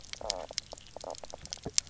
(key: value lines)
label: biophony, knock croak
recorder: SoundTrap 300